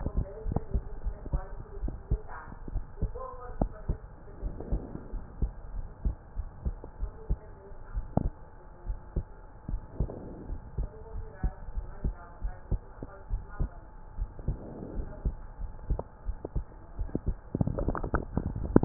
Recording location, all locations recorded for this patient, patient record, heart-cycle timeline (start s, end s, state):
pulmonary valve (PV)
aortic valve (AV)+pulmonary valve (PV)+tricuspid valve (TV)+mitral valve (MV)
#Age: Adolescent
#Sex: Female
#Height: 153.0 cm
#Weight: 56.1 kg
#Pregnancy status: False
#Murmur: Absent
#Murmur locations: nan
#Most audible location: nan
#Systolic murmur timing: nan
#Systolic murmur shape: nan
#Systolic murmur grading: nan
#Systolic murmur pitch: nan
#Systolic murmur quality: nan
#Diastolic murmur timing: nan
#Diastolic murmur shape: nan
#Diastolic murmur grading: nan
#Diastolic murmur pitch: nan
#Diastolic murmur quality: nan
#Outcome: Normal
#Campaign: 2015 screening campaign
0.00	4.42	unannotated
4.42	4.52	S1
4.52	4.70	systole
4.70	4.82	S2
4.82	5.12	diastole
5.12	5.24	S1
5.24	5.40	systole
5.40	5.54	S2
5.54	5.72	diastole
5.72	5.86	S1
5.86	6.04	systole
6.04	6.16	S2
6.16	6.38	diastole
6.38	6.50	S1
6.50	6.64	systole
6.64	6.78	S2
6.78	7.00	diastole
7.00	7.12	S1
7.12	7.28	systole
7.28	7.38	S2
7.38	7.94	diastole
7.94	8.06	S1
8.06	8.22	systole
8.22	8.34	S2
8.34	8.85	diastole
8.85	8.98	S1
8.98	9.14	systole
9.14	9.26	S2
9.26	9.68	diastole
9.68	9.82	S1
9.82	9.98	systole
9.98	10.14	S2
10.14	10.44	diastole
10.44	10.60	S1
10.60	10.76	systole
10.76	10.90	S2
10.90	11.14	diastole
11.14	11.28	S1
11.28	11.42	systole
11.42	11.54	S2
11.54	11.76	diastole
11.76	11.90	S1
11.90	12.04	systole
12.04	12.18	S2
12.18	12.42	diastole
12.42	12.56	S1
12.56	12.69	systole
12.69	12.82	S2
12.82	13.29	diastole
13.29	13.42	S1
13.42	13.58	systole
13.58	13.72	S2
13.72	14.16	diastole
14.16	14.30	S1
14.30	14.46	systole
14.46	14.62	S2
14.62	14.92	diastole
14.92	15.08	S1
15.08	15.24	systole
15.24	15.38	S2
15.38	15.60	diastole
15.60	15.72	S1
15.72	15.88	systole
15.88	16.04	S2
16.04	16.28	diastole
16.28	18.85	unannotated